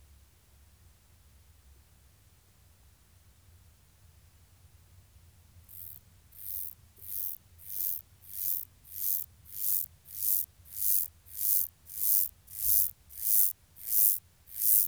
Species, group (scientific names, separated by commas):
Myrmeleotettix maculatus, Orthoptera